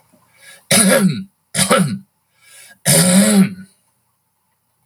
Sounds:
Throat clearing